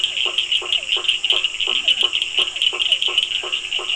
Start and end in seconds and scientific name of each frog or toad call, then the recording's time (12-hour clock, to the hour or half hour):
0.0	3.9	Boana faber
0.0	3.9	Physalaemus cuvieri
1.6	2.2	Leptodactylus latrans
7:30pm